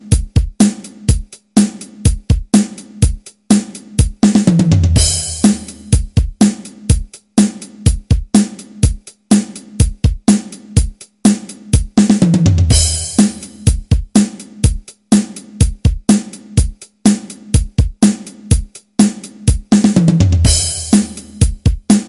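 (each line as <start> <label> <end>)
0.0 Repeating and continuous rock beat. 22.1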